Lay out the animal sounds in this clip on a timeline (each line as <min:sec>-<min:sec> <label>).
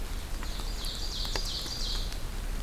0:00.3-0:02.1 Ovenbird (Seiurus aurocapilla)
0:00.4-0:02.1 Black-and-white Warbler (Mniotilta varia)